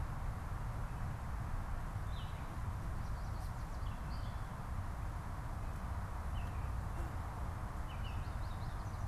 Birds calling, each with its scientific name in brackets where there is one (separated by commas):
Baltimore Oriole (Icterus galbula)